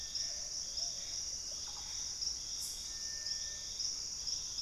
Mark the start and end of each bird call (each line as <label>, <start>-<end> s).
Gray Antbird (Cercomacra cinerascens), 0.0-2.3 s
Plumbeous Pigeon (Patagioenas plumbea), 0.0-4.6 s
Russet-backed Oropendola (Psarocolius angustifrons), 1.5-2.1 s